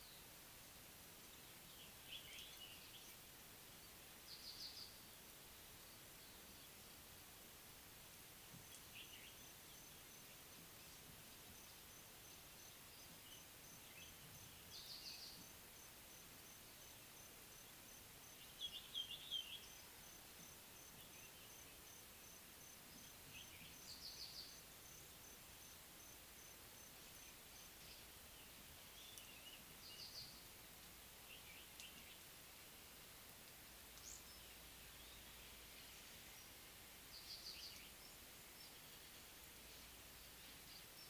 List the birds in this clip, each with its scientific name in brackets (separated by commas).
African Pied Wagtail (Motacilla aguimp), Common Bulbul (Pycnonotus barbatus)